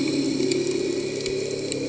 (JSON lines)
{"label": "anthrophony, boat engine", "recorder": "HydroMoth"}